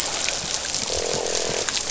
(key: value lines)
label: biophony, croak
recorder: SoundTrap 500